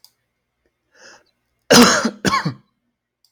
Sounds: Cough